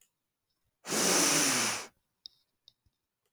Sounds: Sniff